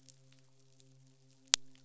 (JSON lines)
{"label": "biophony, midshipman", "recorder": "SoundTrap 500"}